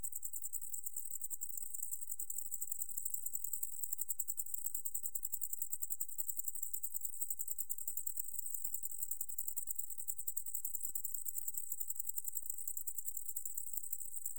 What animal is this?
Decticus albifrons, an orthopteran